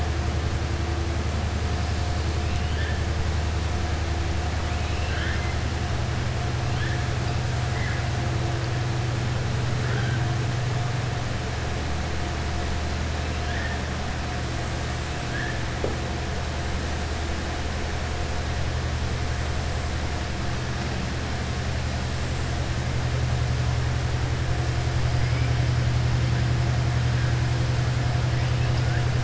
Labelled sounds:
4.7	5.5	killer whale, southern resident, 1.4 to 4.1 kHz

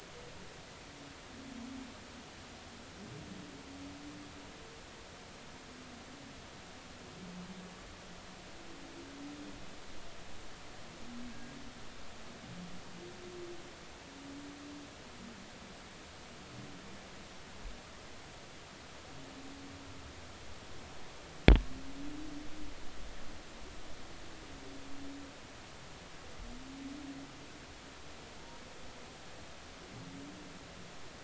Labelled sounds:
11.3	11.6	humpback whale, 1.6 to 1.7 kHz

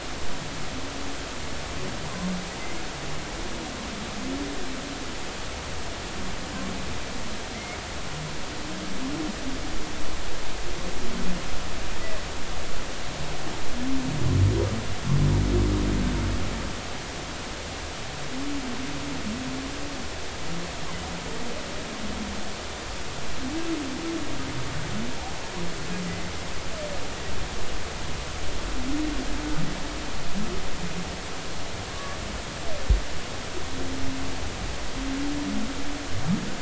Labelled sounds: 7.5	7.8	humpback whale, 2.0 to 2.3 kHz
31.9	32.2	humpback whale, 1.1 to 1.2 kHz

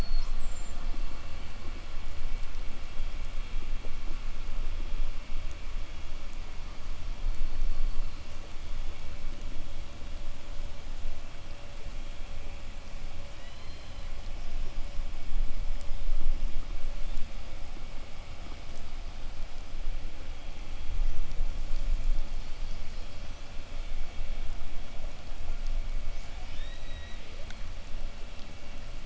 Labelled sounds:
7.1	8.4	killer whale, southern resident, 3.9 to 8.0 kHz
13.1	14.4	killer whale, southern resident, 1.4 to 5.6 kHz
26.3	27.4	killer whale, southern resident, 1.3 to 8.0 kHz

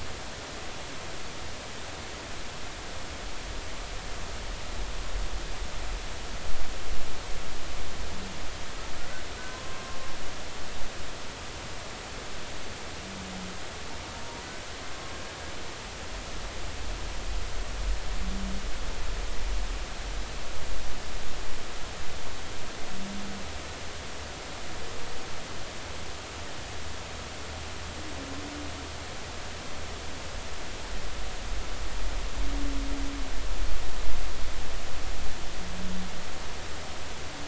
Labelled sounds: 9.5	10.0	humpback whale, 0.99 to 1.1 kHz

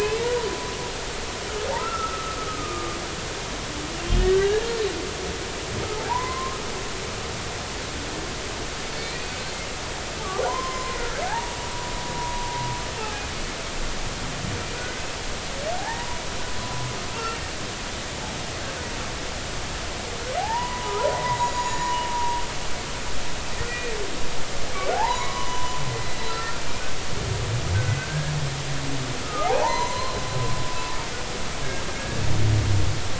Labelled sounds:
1.8	3.0	humpback whale, 1.2 to 1.4 kHz
4.3	4.7	humpback whale, 1.5 to 1.8 kHz
6.1	6.6	humpback whale, 0.80 to 2.1 kHz
9.0	11.6	humpback whale, 0.80 to 5.3 kHz
12.2	12.5	humpback whale, 0.93 to 1.0 kHz
13.0	13.2	humpback whale, 0.80 to 0.90 kHz
14.8	16.2	humpback whale, 0.80 to 2.0 kHz
17.1	17.4	humpback whale, 1.3 to 1.4 kHz
20.4	22.4	humpback whale, 0.80 to 7.0 kHz
23.7	23.9	humpback whale, 1.8 to 2.5 kHz
24.9	26.9	humpback whale, 0.80 to 6.9 kHz
28.0	30.2	humpback whale, 0.80 to 6.2 kHz
31.9	32.2	humpback whale, 1.5 to 1.7 kHz

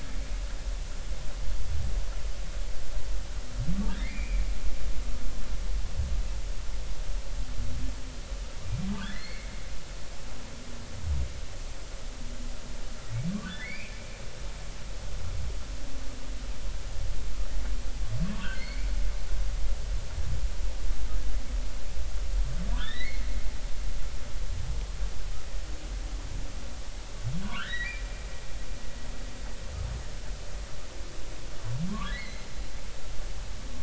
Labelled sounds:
3.9	4.5	humpback whale, 1.5 to 2.5 kHz
9.0	9.5	humpback whale, 1.3 to 4.5 kHz
13.3	14.0	humpback whale, 1.0 to 2.7 kHz
18.5	18.9	humpback whale, 2.0 to 4.5 kHz
22.8	23.3	humpback whale, 1.6 to 3.7 kHz
27.4	28.0	humpback whale, 0.93 to 2.1 kHz
31.9	32.5	humpback whale, 0.93 to 4.2 kHz

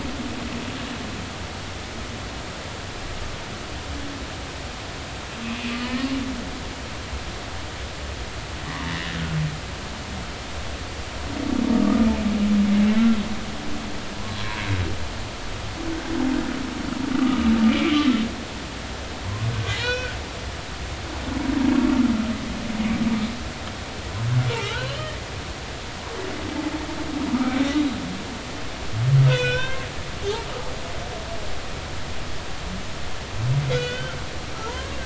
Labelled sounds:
5.4	6.1	humpback whale, 1.7 to 2.8 kHz
11.7	12.1	humpback whale, 1.1 to 1.3 kHz
14.1	14.6	humpback whale, 0.93 to 1.1 kHz
17.2	18.1	humpback whale, 1.1 to 3.2 kHz
19.2	20.2	humpback whale, 0.90 to 5.6 kHz
24.5	25.1	humpback whale, 1.2 to 4.4 kHz
25.7	26.0	humpback whale, 0.83 to 1.1 kHz
29.3	29.9	humpback whale, 0.96 to 5.8 kHz
33.7	34.1	humpback whale, 1.3 to 3.6 kHz

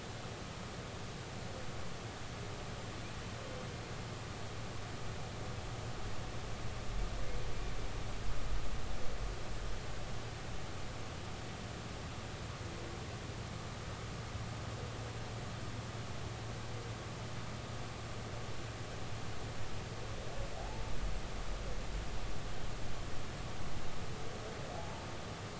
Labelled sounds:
20.6	20.8	humpback whale, 0.80 to 0.93 kHz
24.7	25.1	humpback whale, 0.80 to 0.99 kHz

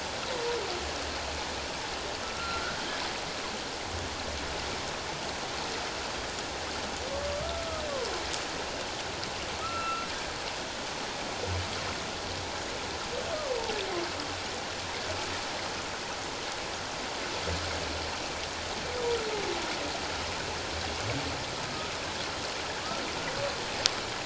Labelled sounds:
0.3	0.6	humpback whale, 0.91 to 1.0 kHz
2.3	2.8	humpback whale, 1.3 to 1.6 kHz
7.1	7.8	humpback whale, 1.1 to 1.4 kHz
9.6	10.1	humpback whale, 1.2 to 2.8 kHz

